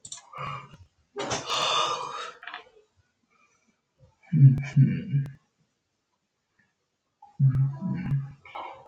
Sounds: Sigh